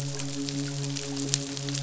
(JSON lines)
{"label": "biophony, midshipman", "recorder": "SoundTrap 500"}